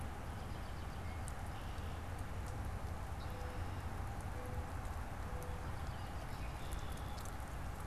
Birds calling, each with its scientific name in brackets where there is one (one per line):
American Robin (Turdus migratorius)
Mourning Dove (Zenaida macroura)
Red-winged Blackbird (Agelaius phoeniceus)